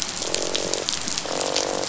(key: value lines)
label: biophony, croak
recorder: SoundTrap 500